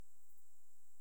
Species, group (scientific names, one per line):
Pholidoptera griseoaptera
Orthoptera